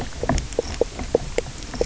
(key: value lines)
label: biophony, knock croak
recorder: SoundTrap 300